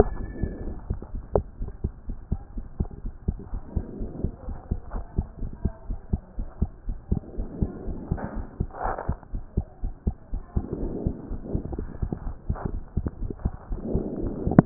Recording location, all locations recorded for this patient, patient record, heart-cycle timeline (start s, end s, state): pulmonary valve (PV)
aortic valve (AV)+pulmonary valve (PV)+tricuspid valve (TV)+mitral valve (MV)
#Age: Child
#Sex: Male
#Height: 130.0 cm
#Weight: 26.7 kg
#Pregnancy status: False
#Murmur: Absent
#Murmur locations: nan
#Most audible location: nan
#Systolic murmur timing: nan
#Systolic murmur shape: nan
#Systolic murmur grading: nan
#Systolic murmur pitch: nan
#Systolic murmur quality: nan
#Diastolic murmur timing: nan
#Diastolic murmur shape: nan
#Diastolic murmur grading: nan
#Diastolic murmur pitch: nan
#Diastolic murmur quality: nan
#Outcome: Normal
#Campaign: 2014 screening campaign
0.00	0.76	unannotated
0.76	0.90	diastole
0.90	1.00	S1
1.00	1.12	systole
1.12	1.22	S2
1.22	1.36	diastole
1.36	1.46	S1
1.46	1.60	systole
1.60	1.70	S2
1.70	1.84	diastole
1.84	1.92	S1
1.92	2.08	systole
2.08	2.16	S2
2.16	2.32	diastole
2.32	2.42	S1
2.42	2.54	systole
2.54	2.64	S2
2.64	2.80	diastole
2.80	2.90	S1
2.90	3.04	systole
3.04	3.12	S2
3.12	3.28	diastole
3.28	3.38	S1
3.38	3.52	systole
3.52	3.62	S2
3.62	3.78	diastole
3.78	3.86	S1
3.86	3.98	systole
3.98	4.10	S2
4.10	4.22	diastole
4.22	4.32	S1
4.32	4.46	systole
4.46	4.58	S2
4.58	4.62	diastole
4.62	14.66	unannotated